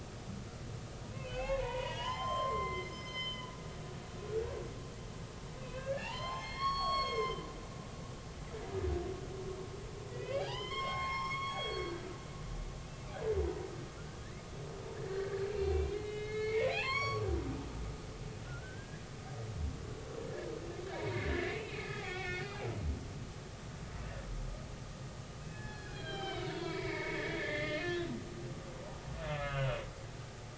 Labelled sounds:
1.0	3.5	humpback whale, 0.80 to 6.3 kHz
5.6	7.5	humpback whale, 0.80 to 7.7 kHz
10.1	11.9	humpback whale, 0.80 to 7.6 kHz
13.4	13.7	humpback whale, 0.90 to 1.0 kHz
15.1	17.2	humpback whale, 0.80 to 5.7 kHz
18.5	19.0	humpback whale, 1.3 to 2.0 kHz
20.9	22.7	humpback whale, 0.90 to 4.5 kHz
25.5	28.8	humpback whale, 0.86 to 4.4 kHz
29.3	29.8	humpback whale, 1.2 to 3.1 kHz

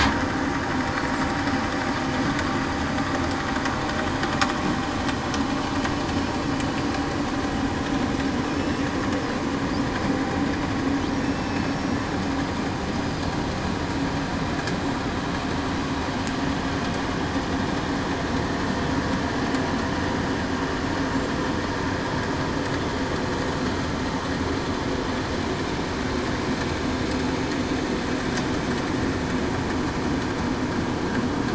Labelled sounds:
11.2	12.1	killer whale, southern resident, 2.6 to 5.6 kHz

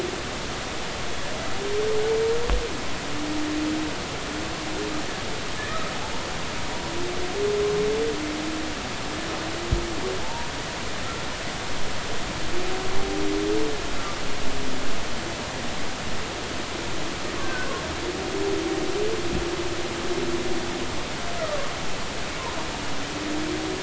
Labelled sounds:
5.6	5.8	humpback whale, 1.7 to 1.9 kHz
10.2	10.5	humpback whale, 0.83 to 0.99 kHz
17.4	17.7	humpback whale, 1.4 to 1.6 kHz
21.4	21.7	humpback whale, 1.0 to 1.4 kHz

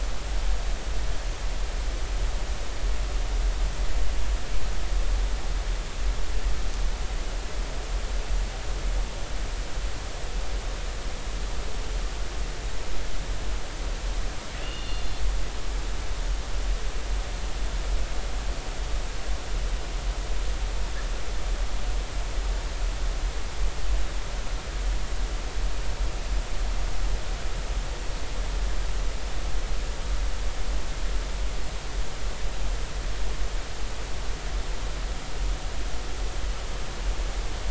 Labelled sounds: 14.6	15.2	killer whale, northern resident, 2.6 to 4.4 kHz

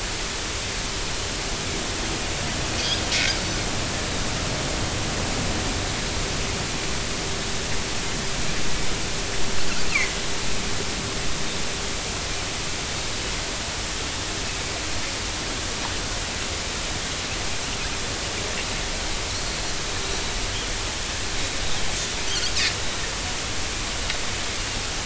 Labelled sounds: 2.8	3.4	Pacific white-sided dolphin, 2.1 to 3.7 kHz
22.3	22.5	Pacific white-sided dolphin, 4.2 to 4.9 kHz

